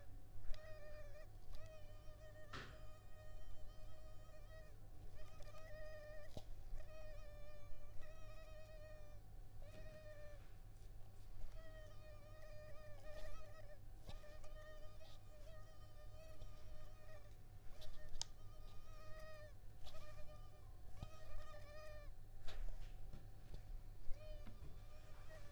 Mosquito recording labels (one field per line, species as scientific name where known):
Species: Culex pipiens complex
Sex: female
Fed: unfed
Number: one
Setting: cup